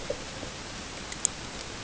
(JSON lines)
{"label": "ambient", "recorder": "HydroMoth"}